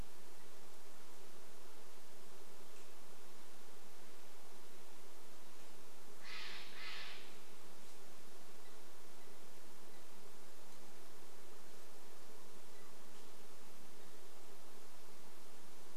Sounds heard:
Steller's Jay call, unidentified sound

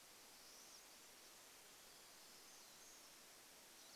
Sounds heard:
Pine Siskin call, Golden-crowned Kinglet song, warbler song

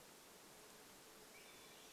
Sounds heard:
insect buzz, Hermit Thrush song

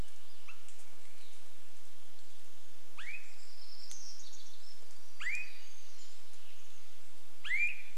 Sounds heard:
warbler song, insect buzz, Swainson's Thrush call, Pacific-slope Flycatcher call

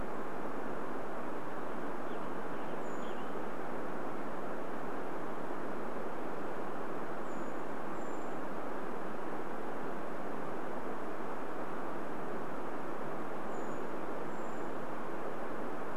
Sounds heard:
Western Tanager song, Brown Creeper call

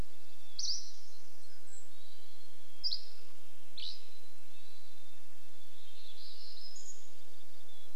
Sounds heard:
warbler song, Hermit Thrush call, Dusky Flycatcher song, Mountain Quail call, Red-breasted Nuthatch song

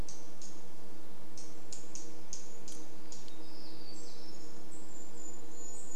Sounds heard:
vehicle engine, warbler song, unidentified bird chip note, Brown Creeper call

